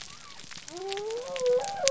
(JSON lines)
{"label": "biophony", "recorder": "SoundTrap 300"}